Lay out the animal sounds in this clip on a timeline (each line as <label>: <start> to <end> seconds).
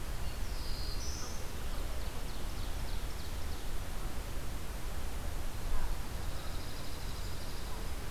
Black-throated Blue Warbler (Setophaga caerulescens): 0.0 to 1.7 seconds
Ovenbird (Seiurus aurocapilla): 1.5 to 3.8 seconds
Dark-eyed Junco (Junco hyemalis): 5.9 to 7.9 seconds